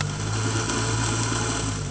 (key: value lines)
label: anthrophony, boat engine
recorder: HydroMoth